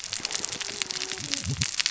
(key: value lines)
label: biophony, cascading saw
recorder: SoundTrap 600 or HydroMoth